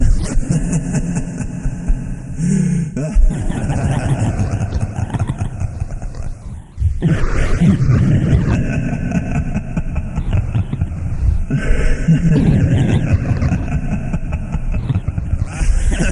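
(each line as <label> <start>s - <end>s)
A deep, psychotic laugh with an eerie echo shifting between high and low pitches, with an unsettling, fluctuating effect that fades and intensifies unpredictably. 0.0s - 16.1s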